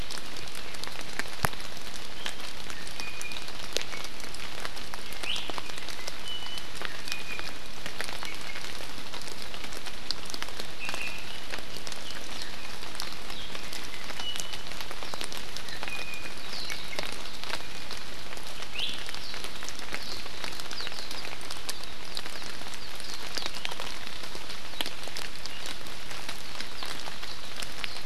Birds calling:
Warbling White-eye (Zosterops japonicus)
Iiwi (Drepanis coccinea)

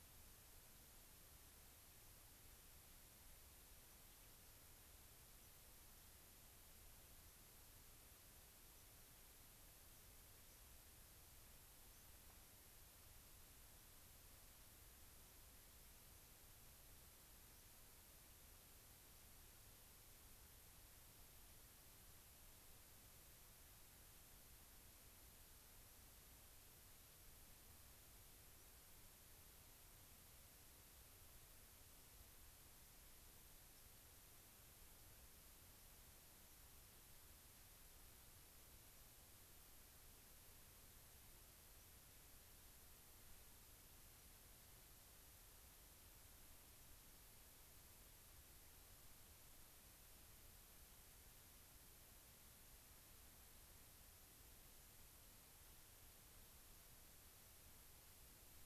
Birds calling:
White-crowned Sparrow (Zonotrichia leucophrys)

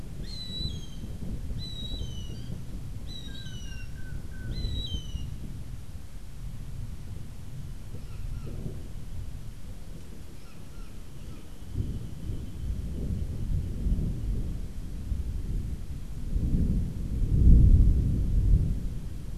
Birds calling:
Brown Jay (Psilorhinus morio)
Long-tailed Manakin (Chiroxiphia linearis)
Gray Hawk (Buteo plagiatus)

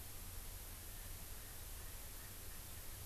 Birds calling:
Erckel's Francolin (Pternistis erckelii)

